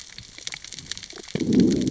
{"label": "biophony, growl", "recorder": "SoundTrap 600 or HydroMoth"}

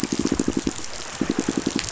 {"label": "biophony, pulse", "recorder": "SoundTrap 500"}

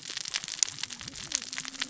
{"label": "biophony, cascading saw", "recorder": "SoundTrap 600 or HydroMoth"}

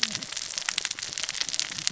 {"label": "biophony, cascading saw", "recorder": "SoundTrap 600 or HydroMoth"}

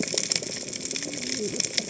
{"label": "biophony, cascading saw", "recorder": "HydroMoth"}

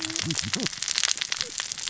{"label": "biophony, cascading saw", "recorder": "SoundTrap 600 or HydroMoth"}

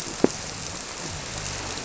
{"label": "biophony", "recorder": "SoundTrap 300"}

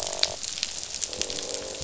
{"label": "biophony, croak", "recorder": "SoundTrap 500"}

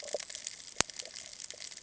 {"label": "ambient", "recorder": "HydroMoth"}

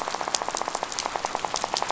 {"label": "biophony, rattle", "recorder": "SoundTrap 500"}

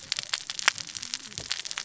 {"label": "biophony, cascading saw", "recorder": "SoundTrap 600 or HydroMoth"}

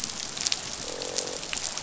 {"label": "biophony, croak", "recorder": "SoundTrap 500"}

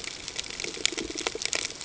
{"label": "ambient", "recorder": "HydroMoth"}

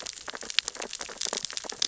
{"label": "biophony, sea urchins (Echinidae)", "recorder": "SoundTrap 600 or HydroMoth"}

